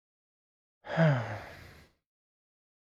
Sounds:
Sigh